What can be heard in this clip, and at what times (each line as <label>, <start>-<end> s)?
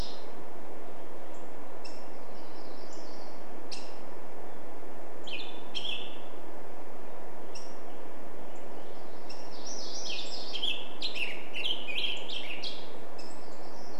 Black-headed Grosbeak call, 0-8 s
Hermit Warbler song, 2-4 s
Black-headed Grosbeak song, 4-6 s
MacGillivray's Warbler song, 8-12 s
Black-headed Grosbeak song, 10-14 s